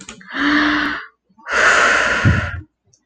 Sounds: Sneeze